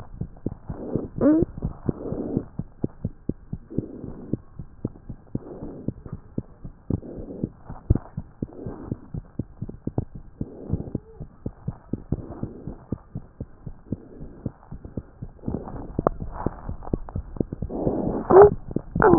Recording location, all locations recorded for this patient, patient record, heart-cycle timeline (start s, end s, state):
mitral valve (MV)
aortic valve (AV)+pulmonary valve (PV)+tricuspid valve (TV)+mitral valve (MV)
#Age: Infant
#Sex: Male
#Height: 80.0 cm
#Weight: 10.9 kg
#Pregnancy status: False
#Murmur: Absent
#Murmur locations: nan
#Most audible location: nan
#Systolic murmur timing: nan
#Systolic murmur shape: nan
#Systolic murmur grading: nan
#Systolic murmur pitch: nan
#Systolic murmur quality: nan
#Diastolic murmur timing: nan
#Diastolic murmur shape: nan
#Diastolic murmur grading: nan
#Diastolic murmur pitch: nan
#Diastolic murmur quality: nan
#Outcome: Normal
#Campaign: 2015 screening campaign
0.00	8.93	unannotated
8.93	9.12	diastole
9.12	9.24	S1
9.24	9.36	systole
9.36	9.44	S2
9.44	9.60	diastole
9.60	9.72	S1
9.72	9.86	systole
9.86	9.94	S2
9.94	10.14	diastole
10.14	10.24	S1
10.24	10.38	systole
10.38	10.48	S2
10.48	10.70	diastole
10.70	10.84	S1
10.84	10.92	systole
10.92	11.01	S2
11.01	11.16	diastole
11.16	11.28	S1
11.28	11.42	systole
11.42	11.54	S2
11.54	11.65	diastole
11.65	11.75	S1
11.75	11.90	systole
11.90	12.00	S2
12.00	12.16	diastole
12.16	12.27	S1
12.27	12.40	systole
12.40	12.49	S2
12.49	12.64	diastole
12.64	12.74	S1
12.74	12.88	systole
12.88	13.01	S2
13.01	13.14	diastole
13.14	13.23	S1
13.23	13.38	systole
13.38	13.48	S2
13.48	13.65	diastole
13.65	13.74	S1
13.74	13.89	systole
13.89	14.01	S2
14.01	14.19	diastole
14.19	14.29	S1
14.29	14.44	systole
14.44	14.54	S2
14.54	14.71	diastole
14.71	19.18	unannotated